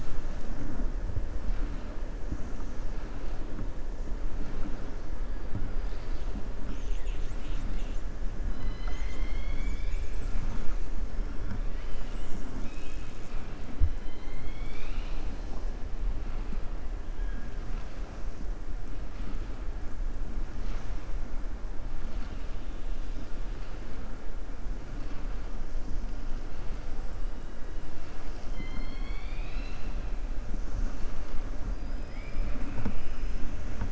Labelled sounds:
6.6	8.0	killer whale, southern resident, 1.9 to 4.2 kHz
13.9	15.5	killer whale, southern resident, 2.0 to 5.8 kHz
28.2	29.9	killer whale, southern resident, 1.4 to 5.6 kHz

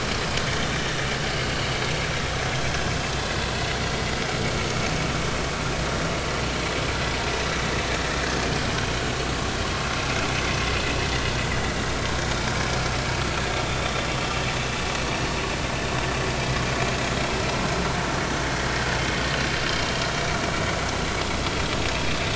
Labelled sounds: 14.2	14.4	vessel noise, 2.6 to 2.8 kHz

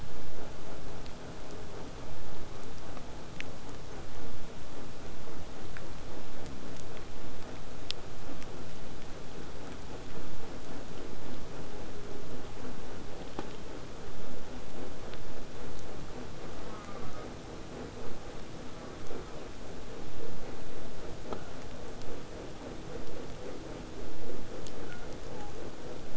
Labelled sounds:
0.0	5.0	vessel noise, 0 to 8.0 kHz
16.6	17.4	killer whale, southern resident, J pod, call S04, 0.14 to 2.2 kHz
18.6	19.4	killer whale, southern resident, J pod, call S04, 0.24 to 1.8 kHz
24.9	25.8	killer whale, southern resident, 0.61 to 1.6 kHz

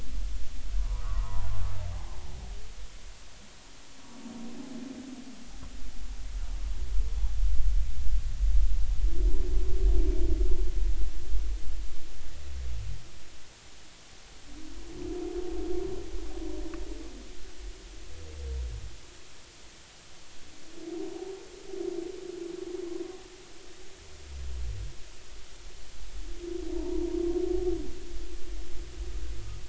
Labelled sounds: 0.8	1.5	humpback whale, 0.80 to 1.5 kHz
26.7	27.0	humpback whale, 0.86 to 1.0 kHz

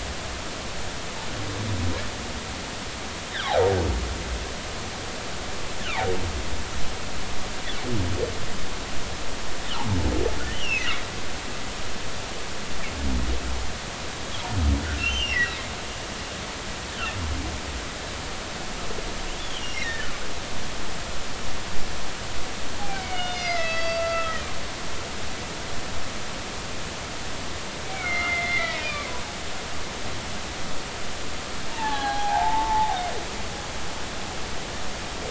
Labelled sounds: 3.5	3.7	humpback whale, 0.80 to 0.96 kHz
5.8	6.1	humpback whale, 0.80 to 1.8 kHz
10.5	10.9	humpback whale, 2.5 to 5.8 kHz
15.0	15.6	humpback whale, 1.9 to 3.2 kHz
19.6	20.1	humpback whale, 1.7 to 5.8 kHz
20.3	20.9	humpback whale, 2.7 to 3.6 kHz
22.8	25.0	humpback whale, 0.80 to 6.0 kHz
27.9	29.1	humpback whale, 1.2 to 4.0 kHz
31.7	33.0	humpback whale, 0.80 to 1.8 kHz

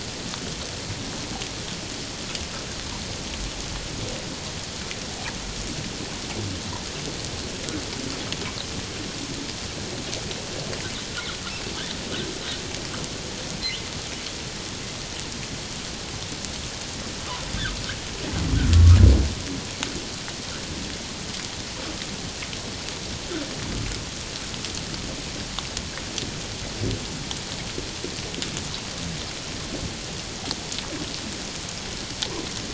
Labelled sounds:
13.6	13.9	humpback whale, 1.9 to 2.3 kHz

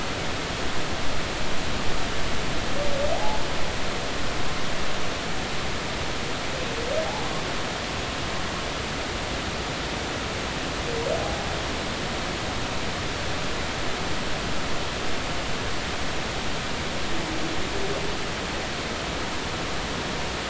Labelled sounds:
3.1	3.4	humpback whale, 0.80 to 0.99 kHz

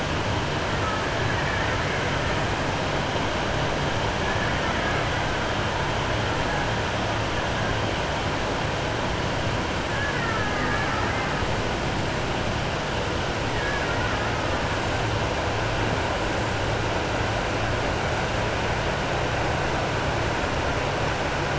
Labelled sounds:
1.2	2.0	killer whale, Bigg's (transient), 1.3 to 2.4 kHz
9.9	11.3	killer whale, Bigg's (transient), 0.76 to 2.4 kHz

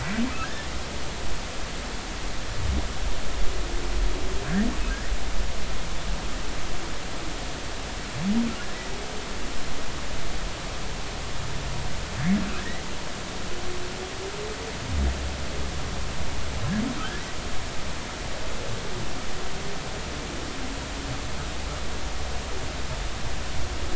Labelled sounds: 0.3	0.7	humpback whale, 1.2 to 1.9 kHz
17.0	17.2	humpback whale, 1.2 to 1.8 kHz

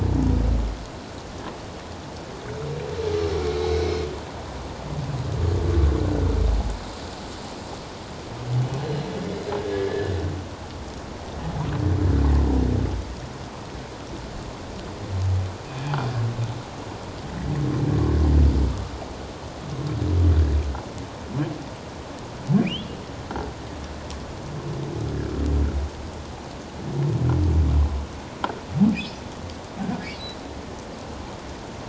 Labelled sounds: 3.5	4.0	humpback whale, 2.1 to 4.0 kHz
9.6	10.1	humpback whale, 1.5 to 1.9 kHz
22.6	22.9	humpback whale, 2.2 to 3.5 kHz
30.1	30.4	humpback whale, 3.8 to 4.1 kHz

